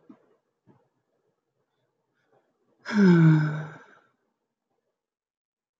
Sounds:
Sigh